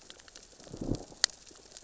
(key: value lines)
label: biophony, growl
recorder: SoundTrap 600 or HydroMoth